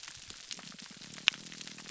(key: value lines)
label: biophony, grouper groan
recorder: SoundTrap 300